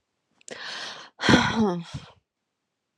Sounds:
Sigh